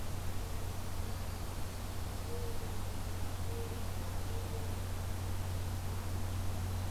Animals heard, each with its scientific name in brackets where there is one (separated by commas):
Mourning Dove (Zenaida macroura), Black-throated Green Warbler (Setophaga virens)